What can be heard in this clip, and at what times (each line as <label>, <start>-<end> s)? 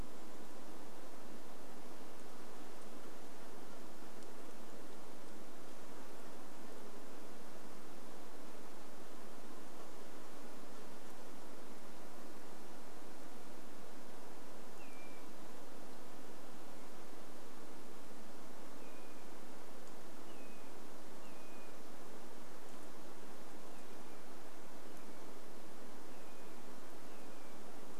insect buzz, 8-18 s
Say's Phoebe song, 14-16 s
Say's Phoebe song, 18-28 s